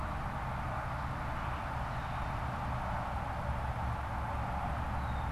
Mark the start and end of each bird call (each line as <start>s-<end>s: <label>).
0.0s-5.3s: Red-winged Blackbird (Agelaius phoeniceus)